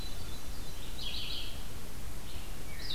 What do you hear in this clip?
Hermit Thrush, Red-eyed Vireo